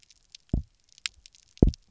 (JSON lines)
{"label": "biophony, double pulse", "recorder": "SoundTrap 300"}